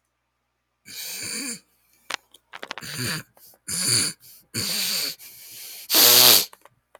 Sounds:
Throat clearing